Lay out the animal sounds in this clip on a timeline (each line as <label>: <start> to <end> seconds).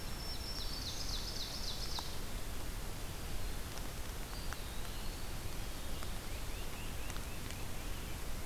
Black-throated Green Warbler (Setophaga virens): 0.0 to 1.3 seconds
Ovenbird (Seiurus aurocapilla): 0.0 to 2.2 seconds
Eastern Wood-Pewee (Contopus virens): 4.1 to 5.6 seconds
Great Crested Flycatcher (Myiarchus crinitus): 5.9 to 8.0 seconds